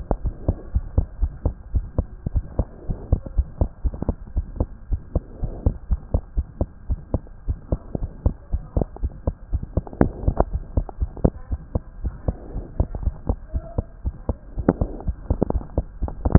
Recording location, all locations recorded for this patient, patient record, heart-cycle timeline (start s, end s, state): aortic valve (AV)
aortic valve (AV)+pulmonary valve (PV)+tricuspid valve (TV)+mitral valve (MV)
#Age: Child
#Sex: Male
#Height: 99.0 cm
#Weight: 15.1 kg
#Pregnancy status: False
#Murmur: Absent
#Murmur locations: nan
#Most audible location: nan
#Systolic murmur timing: nan
#Systolic murmur shape: nan
#Systolic murmur grading: nan
#Systolic murmur pitch: nan
#Systolic murmur quality: nan
#Diastolic murmur timing: nan
#Diastolic murmur shape: nan
#Diastolic murmur grading: nan
#Diastolic murmur pitch: nan
#Diastolic murmur quality: nan
#Outcome: Normal
#Campaign: 2015 screening campaign
0.00	0.22	unannotated
0.22	0.33	S1
0.33	0.44	systole
0.44	0.56	S2
0.56	0.72	diastole
0.72	0.86	S1
0.86	0.92	systole
0.92	1.08	S2
1.08	1.20	diastole
1.20	1.34	S1
1.34	1.42	systole
1.42	1.56	S2
1.56	1.72	diastole
1.72	1.86	S1
1.86	1.94	systole
1.94	2.06	S2
2.06	2.26	diastole
2.26	2.44	S1
2.44	2.56	systole
2.56	2.68	S2
2.68	2.88	diastole
2.88	2.98	S1
2.98	3.08	systole
3.08	3.20	S2
3.20	3.34	diastole
3.34	3.50	S1
3.50	3.60	systole
3.60	3.70	S2
3.70	3.84	diastole
3.84	3.96	S1
3.96	4.06	systole
4.06	4.16	S2
4.16	4.34	diastole
4.34	4.46	S1
4.46	4.58	systole
4.58	4.72	S2
4.72	4.90	diastole
4.90	5.02	S1
5.02	5.14	systole
5.14	5.24	S2
5.24	5.42	diastole
5.42	5.54	S1
5.54	5.64	systole
5.64	5.78	S2
5.78	5.90	diastole
5.90	6.00	S1
6.00	6.10	systole
6.10	6.22	S2
6.22	6.36	diastole
6.36	6.46	S1
6.46	6.60	systole
6.60	6.70	S2
6.70	6.88	diastole
6.88	7.02	S1
7.02	7.11	systole
7.11	7.24	S2
7.24	7.45	diastole
7.45	7.58	S1
7.58	7.68	systole
7.68	7.82	S2
7.82	8.00	diastole
8.00	8.12	S1
8.12	8.22	systole
8.22	8.36	S2
8.36	8.50	diastole
8.50	8.63	S1
8.63	8.75	systole
8.75	8.88	S2
8.88	9.00	diastole
9.00	9.12	S1
9.12	9.26	systole
9.26	9.36	S2
9.36	9.52	diastole
9.52	9.64	S1
9.64	9.72	systole
9.72	9.86	S2
9.86	10.00	diastole
10.00	10.14	S1
10.14	10.22	systole
10.22	10.36	S2
10.36	10.50	diastole
10.50	10.64	S1
10.64	10.76	systole
10.76	10.88	S2
10.88	11.00	diastole
11.00	11.12	S1
11.12	11.20	systole
11.20	11.36	S2
11.36	11.49	diastole
11.49	11.62	S1
11.62	11.73	systole
11.73	11.84	S2
11.84	12.02	diastole
12.02	12.14	S1
12.14	12.24	systole
12.24	12.38	S2
12.38	12.54	diastole
12.54	12.66	S1
12.66	12.76	systole
12.76	12.88	S2
12.88	13.02	diastole
13.02	13.16	S1
13.16	13.28	systole
13.28	13.38	S2
13.38	13.52	diastole
13.52	13.64	S1
13.64	13.74	systole
13.74	13.88	S2
13.88	14.02	diastole
14.02	14.14	S1
14.14	14.27	systole
14.27	14.38	S2
14.38	14.55	diastole
14.55	14.66	S1
14.66	14.79	systole
14.79	14.90	S2
14.90	15.04	diastole
15.04	15.16	S1
15.16	15.26	systole
15.26	15.40	S2
15.40	15.54	diastole
15.54	15.66	S1
15.66	15.74	systole
15.74	15.88	S2
15.88	16.00	diastole
16.00	16.11	S1
16.11	16.38	unannotated